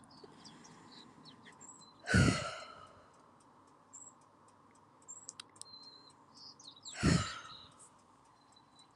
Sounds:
Sigh